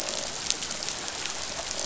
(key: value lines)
label: biophony, croak
recorder: SoundTrap 500